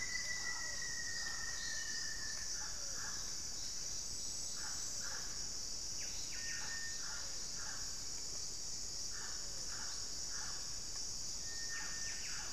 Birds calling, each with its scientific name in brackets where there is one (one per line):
Pale-vented Pigeon (Patagioenas cayennensis)
Buff-breasted Wren (Cantorchilus leucotis)
Rufous-fronted Antthrush (Formicarius rufifrons)
Mealy Parrot (Amazona farinosa)